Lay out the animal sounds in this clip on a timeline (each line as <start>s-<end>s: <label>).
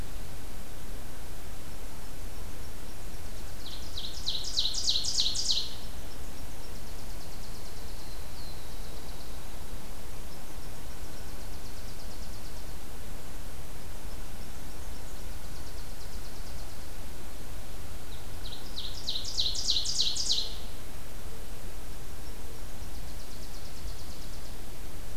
1.6s-4.8s: Nashville Warbler (Leiothlypis ruficapilla)
3.4s-5.7s: Ovenbird (Seiurus aurocapilla)
5.6s-8.0s: Nashville Warbler (Leiothlypis ruficapilla)
7.9s-9.4s: Black-throated Blue Warbler (Setophaga caerulescens)
10.0s-12.8s: Nashville Warbler (Leiothlypis ruficapilla)
13.7s-16.8s: Nashville Warbler (Leiothlypis ruficapilla)
18.0s-20.5s: Ovenbird (Seiurus aurocapilla)
21.8s-24.5s: Nashville Warbler (Leiothlypis ruficapilla)